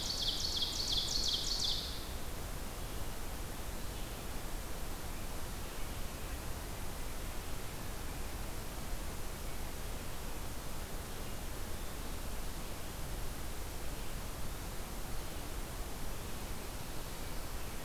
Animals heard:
Red-eyed Vireo (Vireo olivaceus)
Ovenbird (Seiurus aurocapilla)

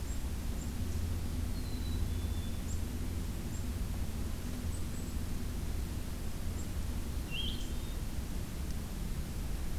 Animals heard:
Black-capped Chickadee (Poecile atricapillus)

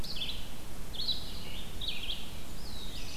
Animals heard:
Black-throated Blue Warbler (Setophaga caerulescens)
Red-eyed Vireo (Vireo olivaceus)

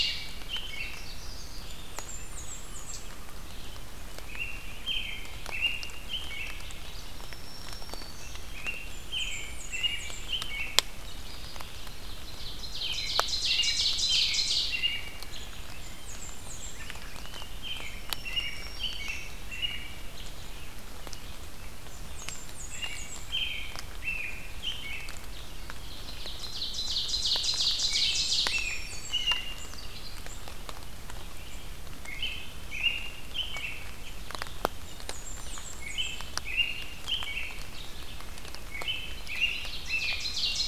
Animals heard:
American Robin (Turdus migratorius)
Blackburnian Warbler (Setophaga fusca)
Red-eyed Vireo (Vireo olivaceus)
Ovenbird (Seiurus aurocapilla)
Black-throated Green Warbler (Setophaga virens)
Magnolia Warbler (Setophaga magnolia)

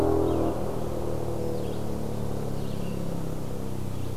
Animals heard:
Red-eyed Vireo (Vireo olivaceus)

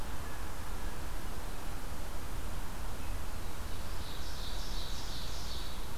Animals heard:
Ovenbird (Seiurus aurocapilla)

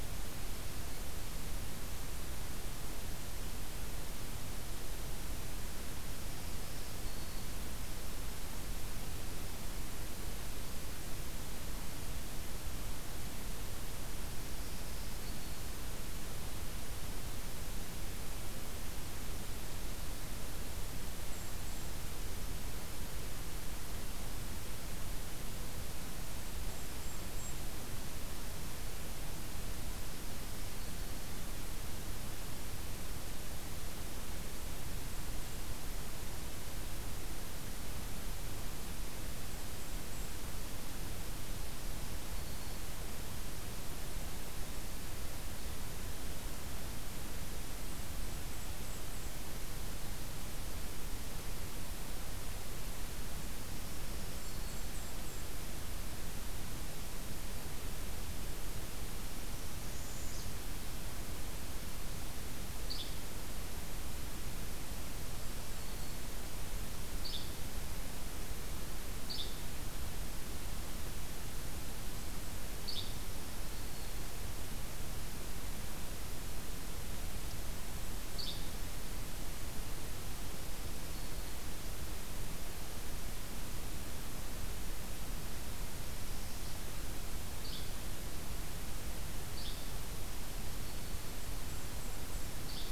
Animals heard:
Yellow-bellied Flycatcher (Empidonax flaviventris)
Black-throated Green Warbler (Setophaga virens)
Northern Parula (Setophaga americana)
Golden-crowned Kinglet (Regulus satrapa)

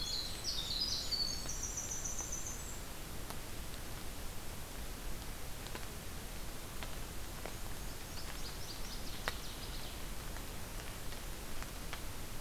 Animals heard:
Winter Wren (Troglodytes hiemalis)
Black-and-white Warbler (Mniotilta varia)
Northern Waterthrush (Parkesia noveboracensis)

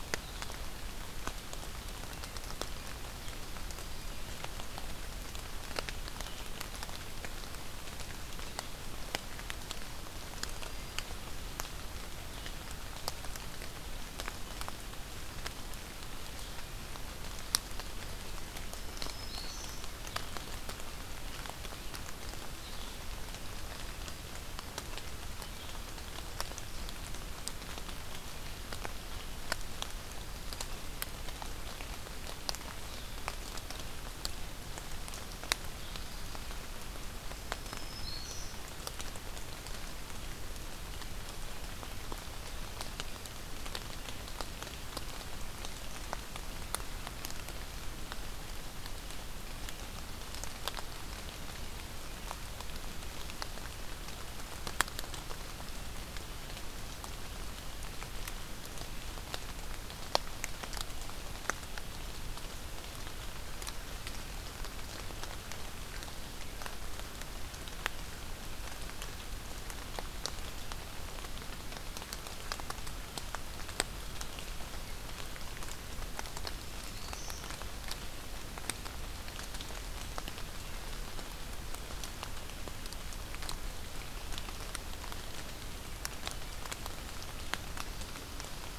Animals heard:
Black-throated Green Warbler (Setophaga virens)

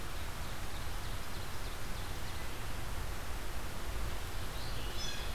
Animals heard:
Blue Jay (Cyanocitta cristata)
Red-eyed Vireo (Vireo olivaceus)

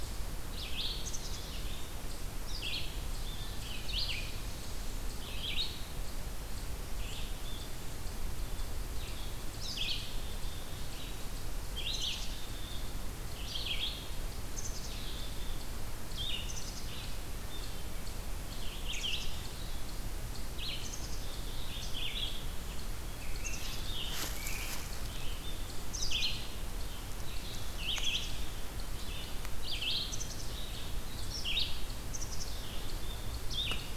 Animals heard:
Ovenbird (Seiurus aurocapilla)
Red-eyed Vireo (Vireo olivaceus)
Scarlet Tanager (Piranga olivacea)
Black-capped Chickadee (Poecile atricapillus)

